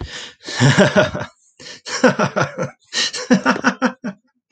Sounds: Laughter